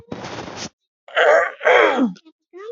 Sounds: Throat clearing